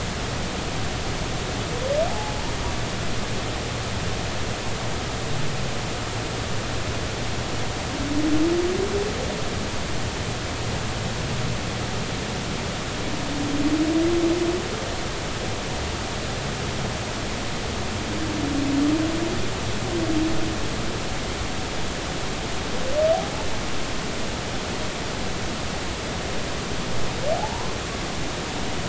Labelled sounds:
2.1	2.4	humpback whale, 0.80 to 0.90 kHz
27.4	27.7	humpback whale, 0.80 to 1.1 kHz

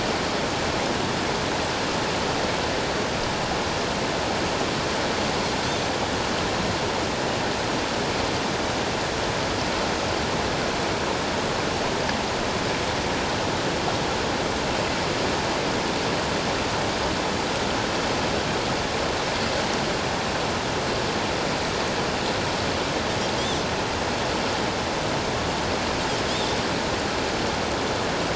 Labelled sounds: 23.4	23.6	Pacific white-sided dolphin, 3.1 to 3.6 kHz

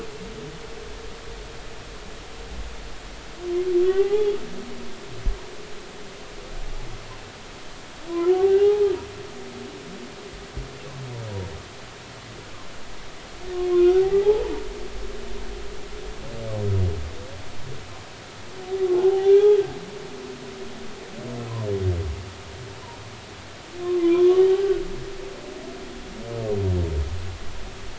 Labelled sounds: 3.9	4.3	humpback whale, 0.80 to 2.1 kHz
8.5	8.7	humpback whale, 2.7 to 2.9 kHz
9.3	9.9	humpback whale, 0.80 to 0.90 kHz
13.7	14.6	humpback whale, 0.80 to 1.6 kHz
18.9	19.3	humpback whale, 0.80 to 0.90 kHz
23.8	24.4	humpback whale, 0.96 to 3.5 kHz

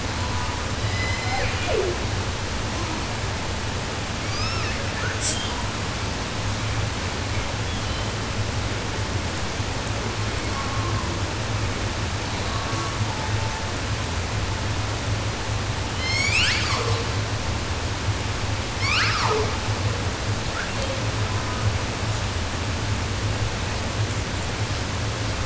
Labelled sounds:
0.0	2.1	killer whale, 0.14 to 8.0 kHz
4.1	5.8	killer whale, 0.17 to 8.0 kHz
7.3	8.4	killer whale, 1.6 to 6.1 kHz
10.1	11.2	killer whale, 0.29 to 5.9 kHz
12.2	13.8	killer whale, 0.19 to 4.5 kHz
15.9	17.2	killer whale, southern resident, J pod, call S01, 0.10 to 8.0 kHz
18.7	19.8	killer whale, 0.23 to 8.0 kHz
20.4	21.9	killer whale, 0.16 to 4.6 kHz

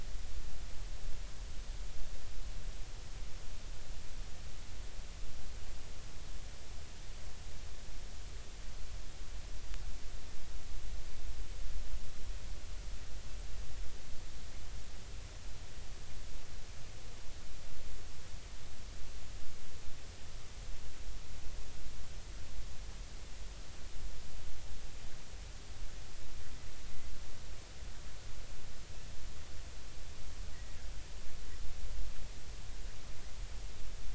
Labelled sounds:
30.5	30.8	killer whale, Bigg's (transient), 1.8 to 2.0 kHz

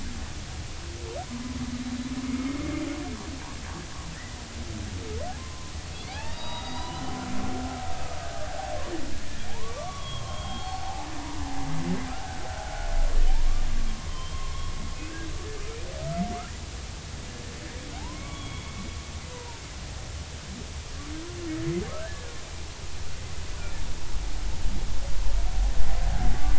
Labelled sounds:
2.2	2.6	humpback whale, 2.1 to 2.2 kHz
4.1	4.4	humpback whale, 1.7 to 2.0 kHz
5.4	7.0	humpback whale, 0.80 to 5.0 kHz
9.5	11.1	humpback whale, 0.80 to 4.5 kHz
12.1	12.7	humpback whale, 1.2 to 1.7 kHz
14.1	14.4	humpback whale, 3.0 to 3.2 kHz
15.1	15.3	humpback whale, 1.5 to 1.7 kHz
18.0	18.8	humpback whale, 0.80 to 3.5 kHz
19.3	19.6	humpback whale, 0.86 to 1.0 kHz
22.0	22.3	humpback whale, 1.5 to 1.8 kHz

